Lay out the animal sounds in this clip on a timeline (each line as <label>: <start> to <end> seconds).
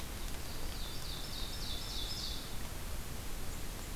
Ovenbird (Seiurus aurocapilla): 0.2 to 2.7 seconds